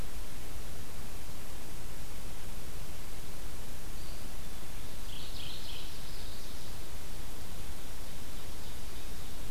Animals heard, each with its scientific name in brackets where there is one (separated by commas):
Mourning Warbler (Geothlypis philadelphia), Ovenbird (Seiurus aurocapilla)